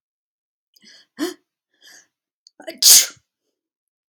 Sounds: Sneeze